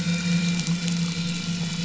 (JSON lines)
{"label": "anthrophony, boat engine", "recorder": "SoundTrap 500"}